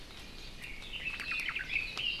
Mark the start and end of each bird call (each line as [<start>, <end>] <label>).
[0.63, 2.20] Red-billed Leiothrix (Leiothrix lutea)
[1.13, 1.73] Omao (Myadestes obscurus)